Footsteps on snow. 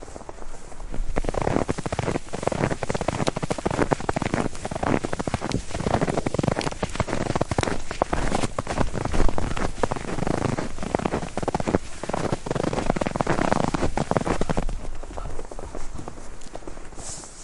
0:01.1 0:14.7

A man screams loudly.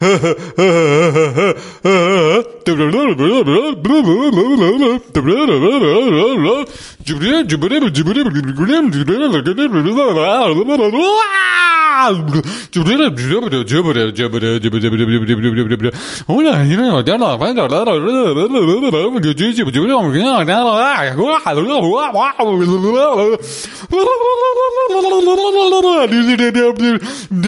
0:11.3 0:12.7

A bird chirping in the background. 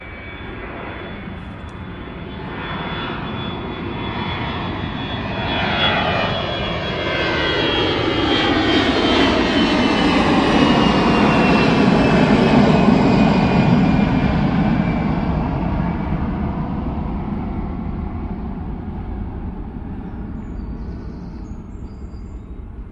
0:19.8 0:22.9

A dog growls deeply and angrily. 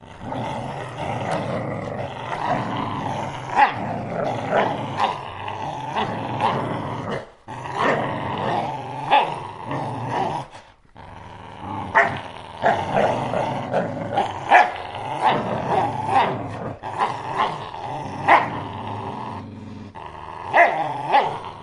0:00.0 0:07.3, 0:11.6 0:21.6

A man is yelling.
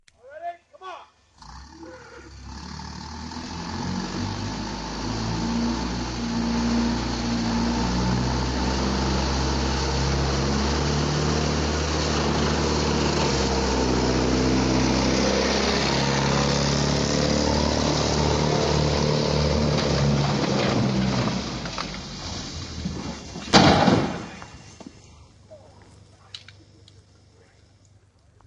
0:00.1 0:01.2

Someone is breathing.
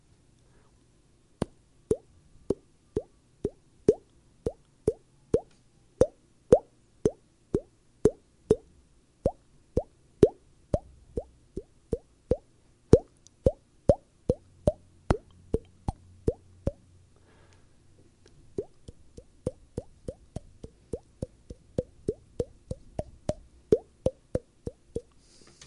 0:00.3 0:01.0, 0:17.2 0:18.4, 0:25.1 0:25.7

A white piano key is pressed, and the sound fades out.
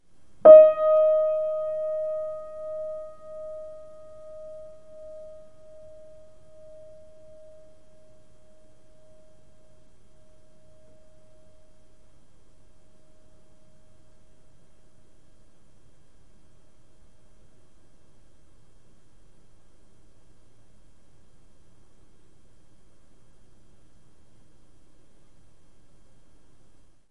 0:00.0 0:06.5

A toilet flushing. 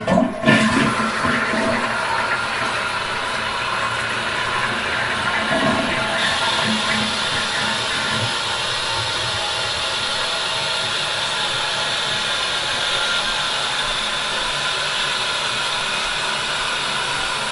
0:00.0 0:06.3

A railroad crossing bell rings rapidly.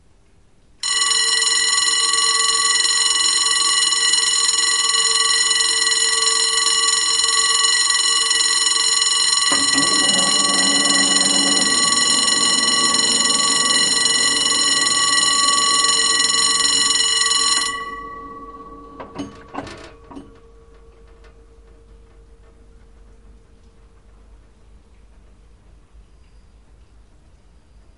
0:00.8 0:18.0

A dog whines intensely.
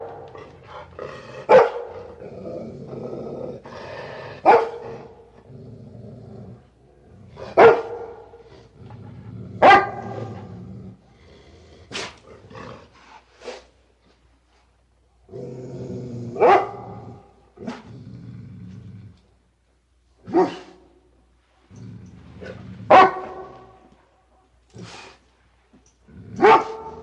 0:10.9 0:15.5, 0:20.6 0:22.9

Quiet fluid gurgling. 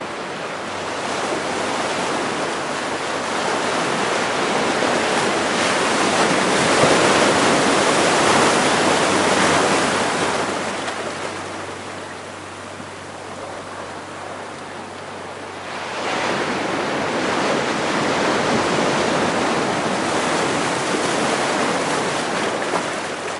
0:11.5 0:15.6

